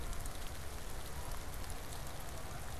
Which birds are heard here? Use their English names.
Canada Goose